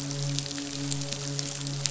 {"label": "biophony, midshipman", "recorder": "SoundTrap 500"}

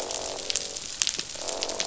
{"label": "biophony, croak", "recorder": "SoundTrap 500"}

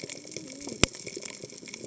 {"label": "biophony, cascading saw", "recorder": "HydroMoth"}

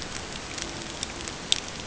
{"label": "ambient", "recorder": "HydroMoth"}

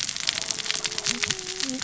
{"label": "biophony, cascading saw", "recorder": "SoundTrap 600 or HydroMoth"}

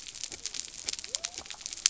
{"label": "biophony", "recorder": "SoundTrap 300"}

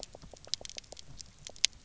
{"label": "biophony, pulse", "recorder": "SoundTrap 300"}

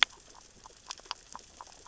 {"label": "biophony, grazing", "recorder": "SoundTrap 600 or HydroMoth"}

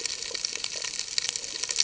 {"label": "ambient", "recorder": "HydroMoth"}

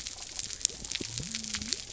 {"label": "biophony", "recorder": "SoundTrap 300"}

